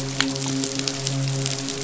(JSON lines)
{"label": "biophony, midshipman", "recorder": "SoundTrap 500"}